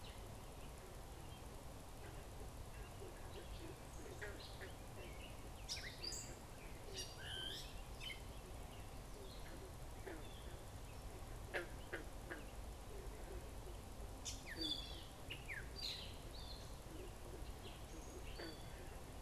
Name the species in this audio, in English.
Gray Catbird